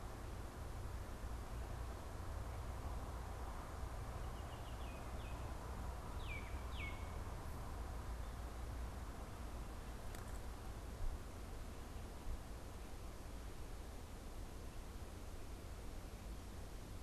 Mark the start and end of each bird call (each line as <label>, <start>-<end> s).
Baltimore Oriole (Icterus galbula), 4.0-7.3 s